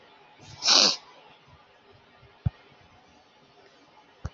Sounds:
Sniff